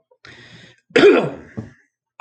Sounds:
Cough